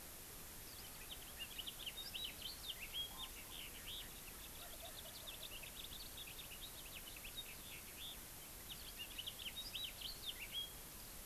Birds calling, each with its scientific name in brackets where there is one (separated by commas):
Wild Turkey (Meleagris gallopavo), House Finch (Haemorhous mexicanus)